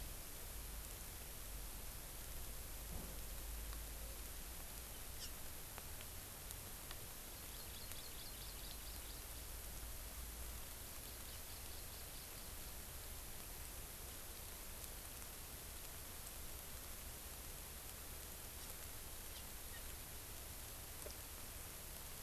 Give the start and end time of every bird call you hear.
[7.17, 9.27] Hawaii Amakihi (Chlorodrepanis virens)
[11.07, 13.07] Hawaii Amakihi (Chlorodrepanis virens)

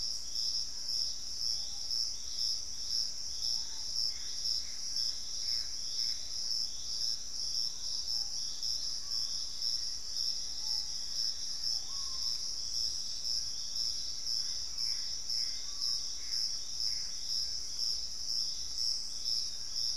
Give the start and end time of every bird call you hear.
[0.00, 6.95] Gray Antbird (Cercomacra cinerascens)
[0.00, 19.97] Screaming Piha (Lipaugus vociferans)
[6.75, 7.35] unidentified bird
[7.45, 9.05] Wing-barred Piprites (Piprites chloris)
[9.65, 11.95] Black-faced Antthrush (Formicarius analis)
[14.15, 17.45] Gray Antbird (Cercomacra cinerascens)
[15.55, 19.95] Piratic Flycatcher (Legatus leucophaius)

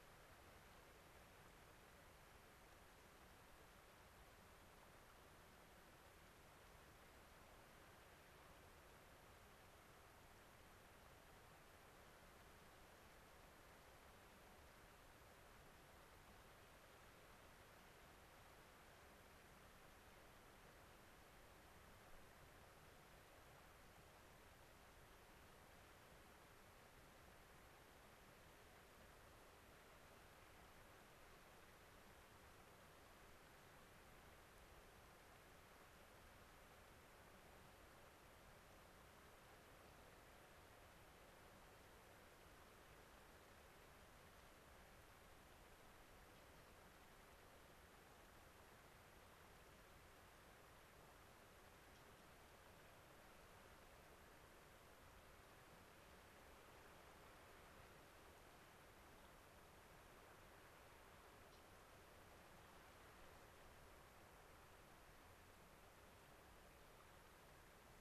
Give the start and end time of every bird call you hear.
[61.45, 61.65] Brewer's Blackbird (Euphagus cyanocephalus)

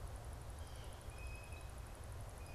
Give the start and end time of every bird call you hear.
[0.50, 2.54] Blue Jay (Cyanocitta cristata)

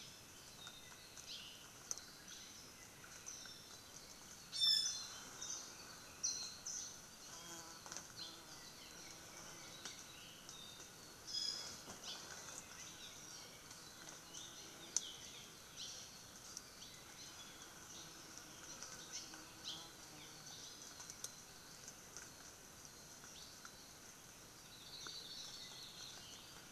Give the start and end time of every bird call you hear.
[1.19, 1.49] Hawaii Creeper (Loxops mana)
[4.49, 5.19] Iiwi (Drepanis coccinea)
[5.39, 5.69] Warbling White-eye (Zosterops japonicus)
[6.19, 6.99] Warbling White-eye (Zosterops japonicus)
[8.09, 8.39] Apapane (Himatione sanguinea)
[11.29, 11.89] Iiwi (Drepanis coccinea)
[11.99, 12.29] Hawaii Creeper (Loxops mana)
[12.89, 13.19] Apapane (Himatione sanguinea)
[14.99, 15.29] Apapane (Himatione sanguinea)
[15.69, 15.99] Hawaii Creeper (Loxops mana)
[16.79, 16.99] Hawaii Creeper (Loxops mana)
[19.59, 19.89] Hawaii Creeper (Loxops mana)
[20.09, 20.39] Apapane (Himatione sanguinea)
[20.49, 21.09] Iiwi (Drepanis coccinea)
[23.29, 23.59] Hawaii Creeper (Loxops mana)
[24.49, 26.39] Hawaii Akepa (Loxops coccineus)

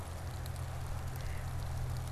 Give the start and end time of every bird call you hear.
[0.89, 2.12] Mallard (Anas platyrhynchos)

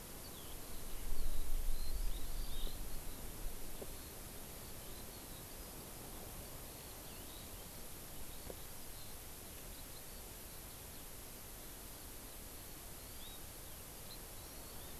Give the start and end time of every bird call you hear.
[0.00, 11.06] Eurasian Skylark (Alauda arvensis)
[12.96, 13.36] Hawaii Amakihi (Chlorodrepanis virens)
[14.46, 14.96] Hawaii Amakihi (Chlorodrepanis virens)

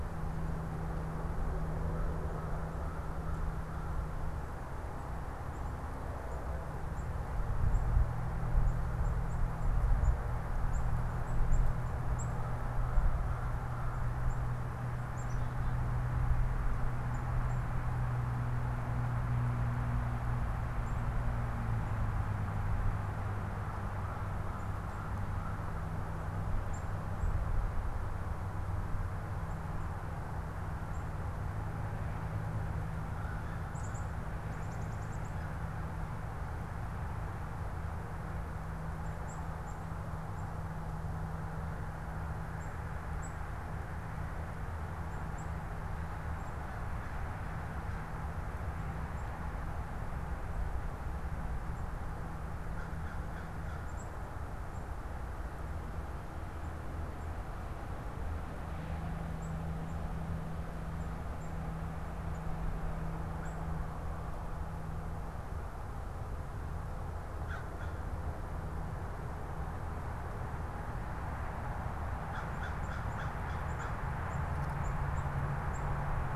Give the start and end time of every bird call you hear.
[0.00, 27.41] Black-capped Chickadee (Poecile atricapillus)
[29.41, 76.36] Black-capped Chickadee (Poecile atricapillus)
[52.61, 54.01] American Crow (Corvus brachyrhynchos)
[67.41, 68.01] American Crow (Corvus brachyrhynchos)
[72.11, 74.21] American Crow (Corvus brachyrhynchos)

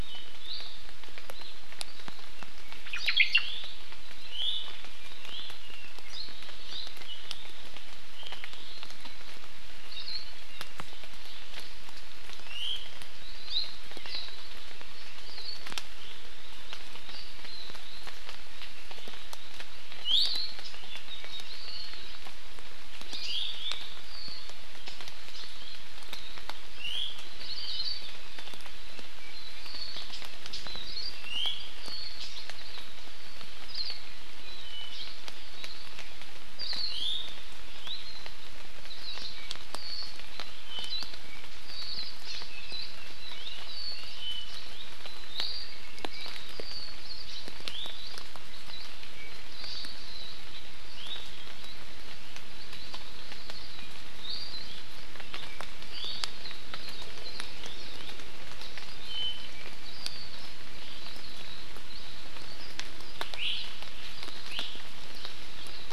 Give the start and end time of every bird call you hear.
[0.45, 0.85] Iiwi (Drepanis coccinea)
[2.85, 3.75] Omao (Myadestes obscurus)
[4.25, 4.75] Iiwi (Drepanis coccinea)
[5.15, 5.65] Iiwi (Drepanis coccinea)
[9.85, 10.25] Warbling White-eye (Zosterops japonicus)
[12.35, 12.75] Iiwi (Drepanis coccinea)
[13.35, 13.65] Hawaii Amakihi (Chlorodrepanis virens)
[20.05, 20.55] Iiwi (Drepanis coccinea)
[23.05, 23.75] Iiwi (Drepanis coccinea)
[26.75, 27.15] Iiwi (Drepanis coccinea)
[27.35, 28.15] Hawaii Akepa (Loxops coccineus)
[30.65, 31.15] Hawaii Akepa (Loxops coccineus)
[31.15, 31.65] Iiwi (Drepanis coccinea)
[33.65, 33.95] Hawaii Akepa (Loxops coccineus)
[36.55, 36.95] Hawaii Akepa (Loxops coccineus)
[36.85, 37.35] Iiwi (Drepanis coccinea)
[39.65, 41.45] Apapane (Himatione sanguinea)
[42.25, 42.45] Hawaii Amakihi (Chlorodrepanis virens)
[43.65, 44.55] Apapane (Himatione sanguinea)
[45.25, 45.85] Iiwi (Drepanis coccinea)
[47.65, 47.95] Iiwi (Drepanis coccinea)
[50.95, 51.25] Iiwi (Drepanis coccinea)
[54.25, 54.55] Iiwi (Drepanis coccinea)
[55.95, 56.25] Iiwi (Drepanis coccinea)
[59.05, 59.75] Apapane (Himatione sanguinea)
[63.35, 63.55] Iiwi (Drepanis coccinea)
[64.45, 64.65] Iiwi (Drepanis coccinea)

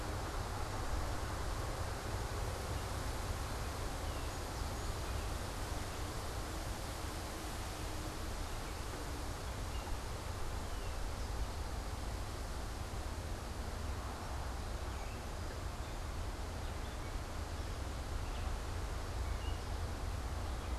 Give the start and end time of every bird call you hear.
[3.83, 4.43] unidentified bird
[4.13, 5.43] Song Sparrow (Melospiza melodia)
[10.43, 11.03] unidentified bird
[14.93, 20.78] Gray Catbird (Dumetella carolinensis)

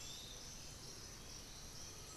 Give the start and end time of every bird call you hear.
[0.00, 2.17] Black-billed Thrush (Turdus ignobilis)
[0.00, 2.17] Piratic Flycatcher (Legatus leucophaius)
[0.00, 2.17] Undulated Tinamou (Crypturellus undulatus)

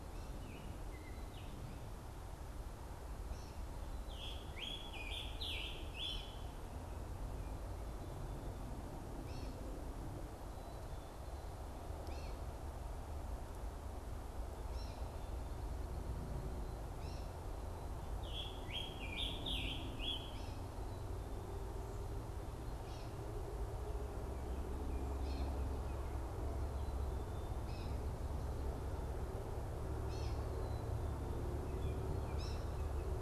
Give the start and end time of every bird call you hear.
[3.17, 33.21] Gray Catbird (Dumetella carolinensis)
[3.96, 6.46] Scarlet Tanager (Piranga olivacea)
[18.07, 20.57] Scarlet Tanager (Piranga olivacea)

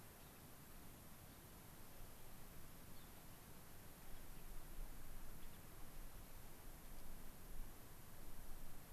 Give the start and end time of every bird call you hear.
[2.76, 3.16] American Pipit (Anthus rubescens)
[3.96, 5.76] Gray-crowned Rosy-Finch (Leucosticte tephrocotis)

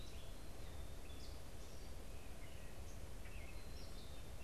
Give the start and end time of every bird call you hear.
[0.00, 4.43] Gray Catbird (Dumetella carolinensis)

